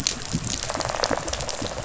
{"label": "biophony, rattle response", "recorder": "SoundTrap 500"}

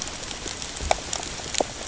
{"label": "ambient", "recorder": "HydroMoth"}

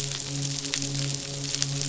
{"label": "biophony, midshipman", "recorder": "SoundTrap 500"}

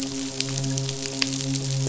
{"label": "biophony, midshipman", "recorder": "SoundTrap 500"}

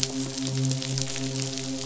{"label": "biophony, midshipman", "recorder": "SoundTrap 500"}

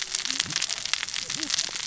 {"label": "biophony, cascading saw", "recorder": "SoundTrap 600 or HydroMoth"}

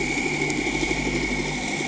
{"label": "anthrophony, boat engine", "recorder": "HydroMoth"}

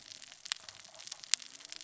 {"label": "biophony, cascading saw", "recorder": "SoundTrap 600 or HydroMoth"}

